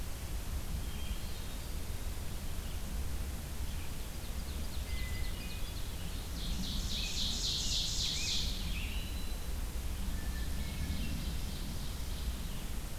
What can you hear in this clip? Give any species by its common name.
Hermit Thrush, Ovenbird, Scarlet Tanager, Black-throated Green Warbler